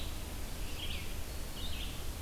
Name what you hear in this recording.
Red-eyed Vireo